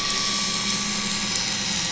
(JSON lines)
{"label": "anthrophony, boat engine", "recorder": "SoundTrap 500"}